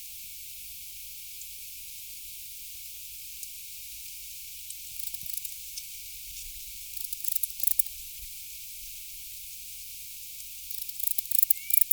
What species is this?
Barbitistes yersini